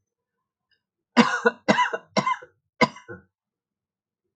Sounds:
Cough